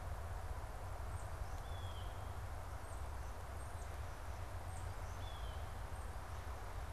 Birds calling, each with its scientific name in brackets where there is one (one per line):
unidentified bird
Blue Jay (Cyanocitta cristata)